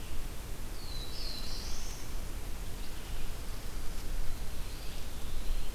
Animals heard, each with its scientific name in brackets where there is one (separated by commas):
Black-throated Blue Warbler (Setophaga caerulescens), Eastern Wood-Pewee (Contopus virens)